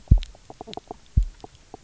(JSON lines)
{"label": "biophony, knock croak", "recorder": "SoundTrap 300"}